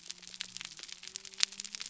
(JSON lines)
{"label": "biophony", "recorder": "SoundTrap 300"}